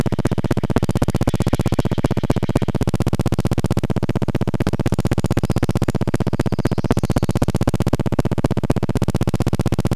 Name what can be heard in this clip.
Steller's Jay call, recorder noise, warbler song